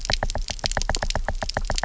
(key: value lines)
label: biophony, knock
recorder: SoundTrap 300